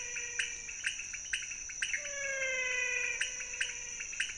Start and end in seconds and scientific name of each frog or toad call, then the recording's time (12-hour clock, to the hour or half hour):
0.0	0.9	Physalaemus albonotatus
0.0	4.3	Leptodactylus podicipinus
1.7	4.3	Physalaemus albonotatus
4am